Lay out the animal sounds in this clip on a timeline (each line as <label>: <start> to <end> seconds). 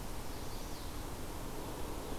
Chestnut-sided Warbler (Setophaga pensylvanica): 0.0 to 0.9 seconds